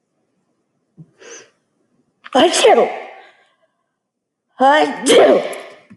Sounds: Sneeze